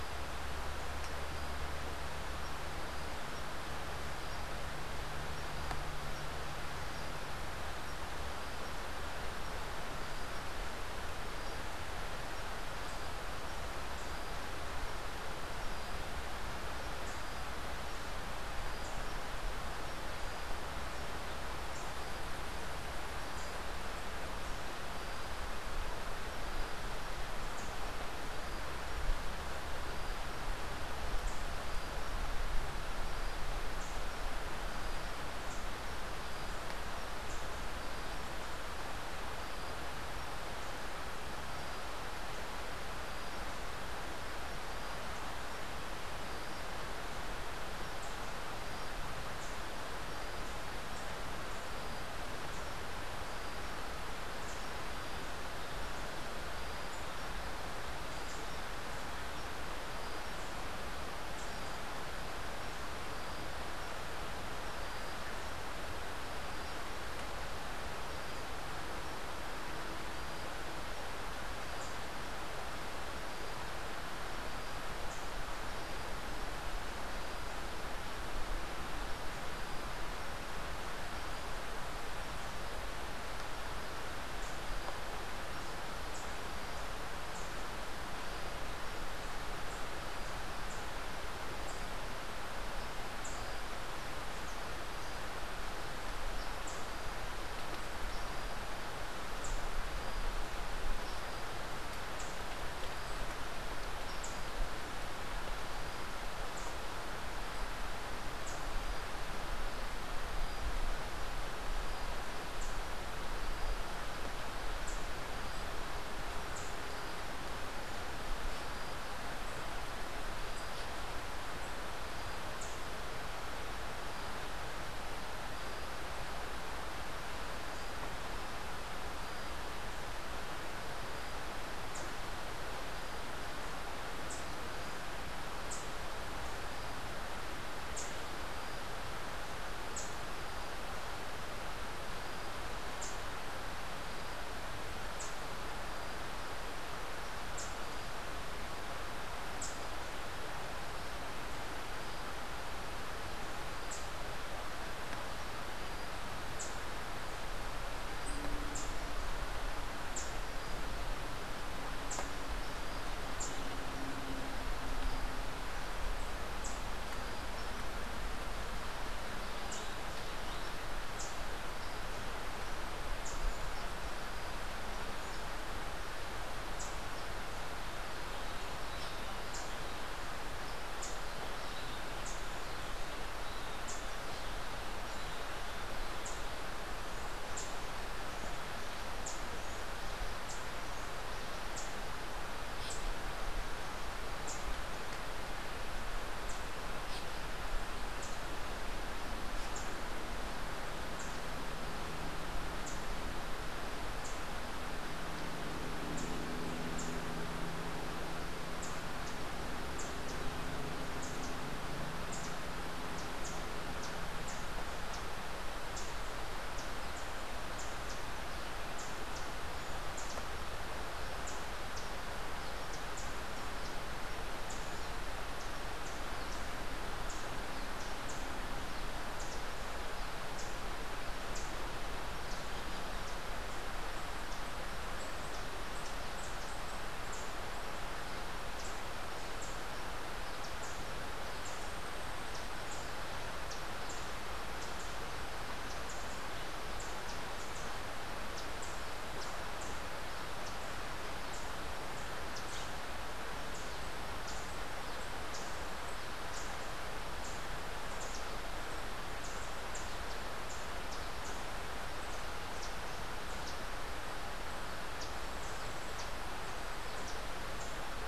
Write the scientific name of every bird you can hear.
Basileuterus rufifrons, Setophaga petechia